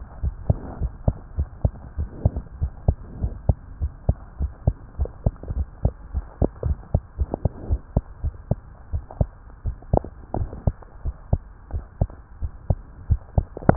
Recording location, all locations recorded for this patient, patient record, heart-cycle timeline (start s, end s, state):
tricuspid valve (TV)
aortic valve (AV)+pulmonary valve (PV)+tricuspid valve (TV)+mitral valve (MV)
#Age: Child
#Sex: Female
#Height: 99.0 cm
#Weight: 17.2 kg
#Pregnancy status: False
#Murmur: Absent
#Murmur locations: nan
#Most audible location: nan
#Systolic murmur timing: nan
#Systolic murmur shape: nan
#Systolic murmur grading: nan
#Systolic murmur pitch: nan
#Systolic murmur quality: nan
#Diastolic murmur timing: nan
#Diastolic murmur shape: nan
#Diastolic murmur grading: nan
#Diastolic murmur pitch: nan
#Diastolic murmur quality: nan
#Outcome: Abnormal
#Campaign: 2015 screening campaign
0.00	0.20	unannotated
0.20	0.34	S1
0.34	0.46	systole
0.46	0.60	S2
0.60	0.80	diastole
0.80	0.92	S1
0.92	1.04	systole
1.04	1.18	S2
1.18	1.36	diastole
1.36	1.48	S1
1.48	1.60	systole
1.60	1.72	S2
1.72	1.98	diastole
1.98	2.10	S1
2.10	2.22	systole
2.22	2.36	S2
2.36	2.58	diastole
2.58	2.72	S1
2.72	2.84	systole
2.84	2.96	S2
2.96	3.20	diastole
3.20	3.34	S1
3.34	3.48	systole
3.48	3.60	S2
3.60	3.80	diastole
3.80	3.92	S1
3.92	4.04	systole
4.04	4.18	S2
4.18	4.40	diastole
4.40	4.52	S1
4.52	4.64	systole
4.64	4.76	S2
4.76	4.98	diastole
4.98	5.10	S1
5.10	5.22	systole
5.22	5.34	S2
5.34	5.52	diastole
5.52	5.68	S1
5.68	5.82	systole
5.82	5.94	S2
5.94	6.14	diastole
6.14	6.28	S1
6.28	6.40	systole
6.40	6.48	S2
6.48	6.66	diastole
6.66	6.78	S1
6.78	6.90	systole
6.90	7.02	S2
7.02	7.17	diastole
7.17	7.30	S1
7.30	7.42	systole
7.42	7.50	S2
7.50	7.68	diastole
7.68	7.80	S1
7.80	7.92	systole
7.92	8.02	S2
8.02	8.22	diastole
8.22	8.34	S1
8.34	8.48	systole
8.48	8.62	S2
8.62	8.90	diastole
8.90	9.04	S1
9.04	9.18	systole
9.18	9.34	S2
9.34	9.62	diastole
9.62	9.76	S1
9.76	9.88	systole
9.88	10.06	S2
10.06	10.34	diastole
10.34	10.50	S1
10.50	10.62	systole
10.62	10.76	S2
10.76	11.01	diastole
11.01	11.14	S1
11.14	11.28	systole
11.28	11.42	S2
11.42	11.70	diastole
11.70	11.84	S1
11.84	11.97	systole
11.97	12.14	S2
12.14	12.39	diastole
12.39	12.52	S1
12.52	12.66	systole
12.66	12.80	S2
12.80	13.06	diastole
13.06	13.20	S1
13.20	13.76	unannotated